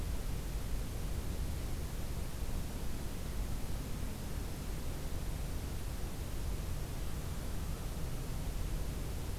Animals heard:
forest ambience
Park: Acadia National Park